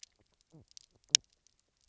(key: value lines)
label: biophony, knock croak
recorder: SoundTrap 300